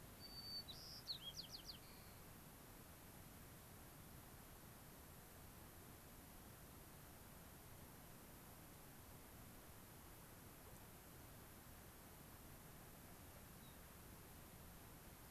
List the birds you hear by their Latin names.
Zonotrichia leucophrys, Anthus rubescens